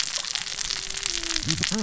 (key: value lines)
label: biophony, cascading saw
recorder: SoundTrap 600 or HydroMoth